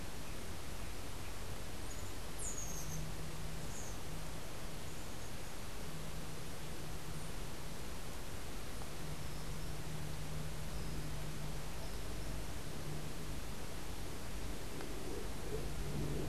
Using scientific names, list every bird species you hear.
unidentified bird